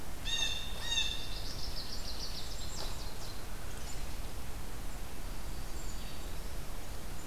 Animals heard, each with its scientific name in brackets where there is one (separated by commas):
Black-throated Green Warbler (Setophaga virens), Black-capped Chickadee (Poecile atricapillus), American Goldfinch (Spinus tristis), Blue Jay (Cyanocitta cristata)